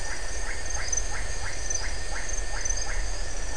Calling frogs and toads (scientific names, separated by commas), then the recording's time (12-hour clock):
Leptodactylus notoaktites
7:00pm